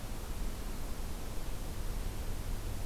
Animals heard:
forest ambience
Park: Acadia National Park